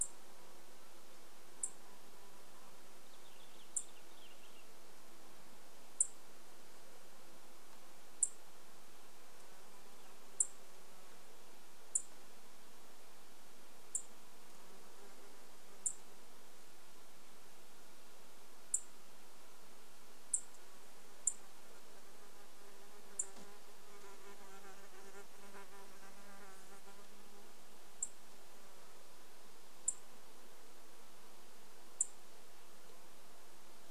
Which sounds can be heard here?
Dark-eyed Junco call, insect buzz, Purple Finch song